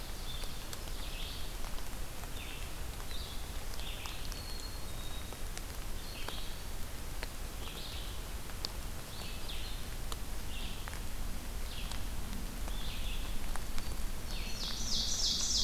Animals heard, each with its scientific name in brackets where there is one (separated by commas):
Red-eyed Vireo (Vireo olivaceus), Ovenbird (Seiurus aurocapilla), Black-capped Chickadee (Poecile atricapillus)